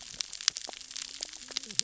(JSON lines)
{"label": "biophony, cascading saw", "recorder": "SoundTrap 600 or HydroMoth"}